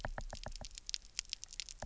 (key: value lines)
label: biophony, knock
recorder: SoundTrap 300